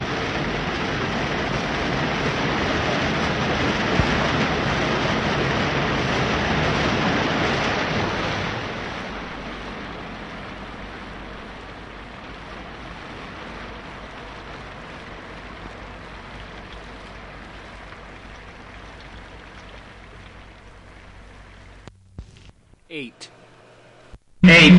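Strong wind gradually fades. 0.0 - 18.2
Raindrops softly falling. 18.2 - 21.9
A person is speaking loudly. 22.9 - 23.5
Someone is speaking very loudly, almost shouting. 24.4 - 24.8

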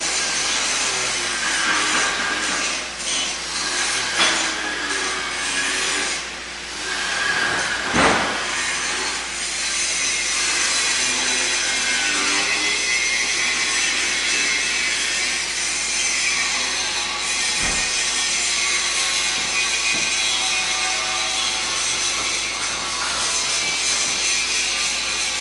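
Mechanical saw buzzing steadily while cutting through metal with two low-pitched tones. 0.0 - 6.3
Machinery is running with a steady rumbling sound. 0.0 - 25.4
Metal clanking loudly. 4.1 - 4.7
A mechanical saw buzzes steadily while cutting through metal. 6.6 - 25.4
Something heavy made of wood falls loudly. 7.8 - 8.3
Hammer strikes a wooden surface quietly in the background. 17.5 - 18.0
Hammer strikes a wooden surface quietly in the background. 19.8 - 20.3
Hammering on metal sounds three times with steady volume and rhythm. 22.1 - 23.5

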